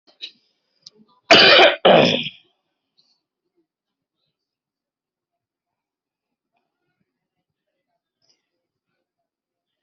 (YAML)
expert_labels:
- quality: good
  cough_type: wet
  dyspnea: false
  wheezing: false
  stridor: false
  choking: false
  congestion: true
  nothing: false
  diagnosis: lower respiratory tract infection
  severity: mild
age: 50
gender: female
respiratory_condition: false
fever_muscle_pain: false
status: healthy